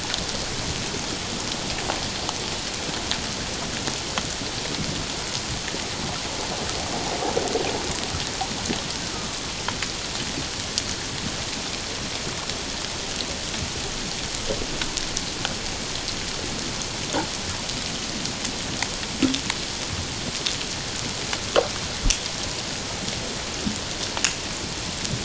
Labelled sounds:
9.1	9.4	killer whale, Bigg's (transient), 1.1 to 1.4 kHz

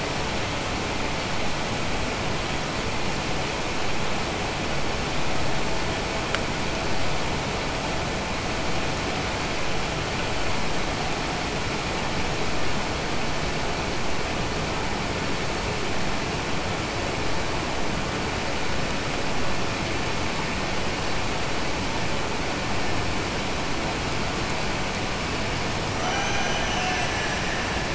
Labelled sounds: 25.9	27.9	killer whale, Bigg's (transient), Gulf of Alaska transient, 0.53 to 3.3 kHz

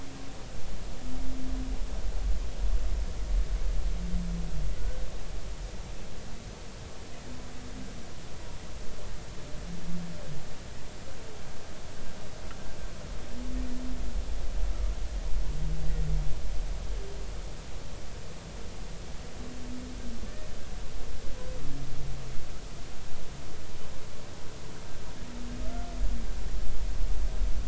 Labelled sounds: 4.8	5.0	humpback whale, 1.4 to 1.6 kHz

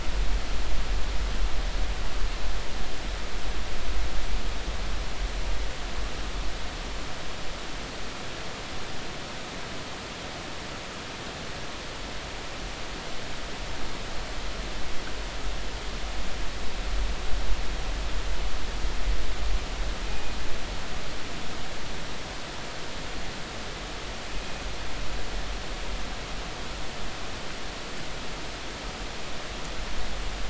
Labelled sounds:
20.1	20.4	killer whale, northern resident, G clan, call N24ii, 2.4 to 2.5 kHz

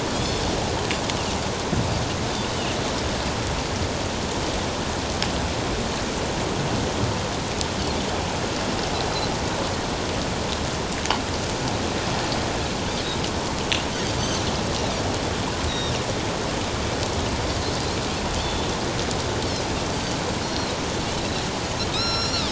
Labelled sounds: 0.1	0.4	Pacific white-sided dolphin, 3.2 to 3.5 kHz
15.7	15.9	Pacific white-sided dolphin, 3.6 to 5.9 kHz
20.4	20.7	Pacific white-sided dolphin, 4.0 to 4.4 kHz
21.2	22.5	Pacific white-sided dolphin, 1.2 to 5.9 kHz

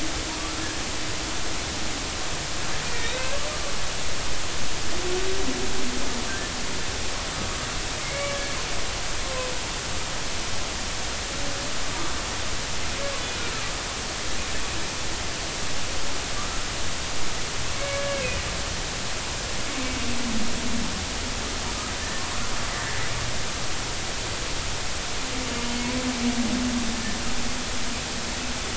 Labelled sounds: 2.8	3.4	humpback whale, 1.5 to 2.8 kHz
8.0	8.5	humpback whale, 1.7 to 2.3 kHz
17.7	18.3	humpback whale, 1.6 to 2.3 kHz

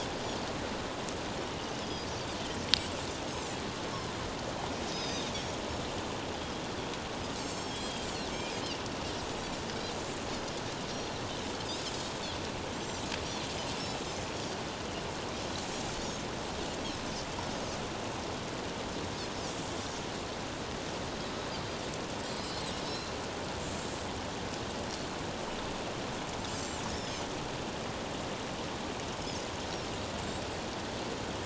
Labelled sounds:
1.8	2.1	Pacific white-sided dolphin, 4.8 to 5.3 kHz
4.9	5.6	Pacific white-sided dolphin, 3.5 to 6.9 kHz
7.4	8.1	Pacific white-sided dolphin, 3.1 to 7.6 kHz
10.9	11.2	Pacific white-sided dolphin, 3.9 to 4.3 kHz
12.7	13.0	Pacific white-sided dolphin, 5.6 to 7.6 kHz
14.3	14.6	Pacific white-sided dolphin, 5.5 to 5.8 kHz
22.3	23.1	Pacific white-sided dolphin, 2.6 to 5.2 kHz
26.5	27.2	Pacific white-sided dolphin, 5.0 to 7.7 kHz

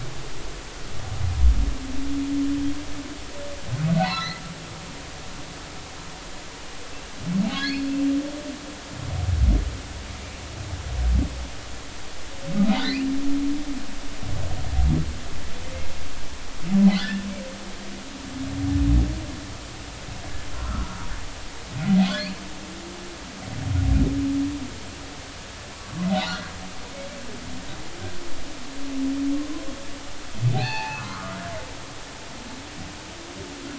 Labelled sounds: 4.0	4.4	humpback whale, 0.80 to 4.4 kHz
7.5	7.9	humpback whale, 1.6 to 4.6 kHz
16.8	17.3	humpback whale, 1.7 to 2.1 kHz
20.5	21.0	humpback whale, 0.90 to 1.5 kHz
25.7	26.5	humpback whale, 0.99 to 1.7 kHz
30.5	31.4	humpback whale, 0.80 to 4.6 kHz

